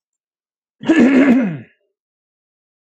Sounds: Throat clearing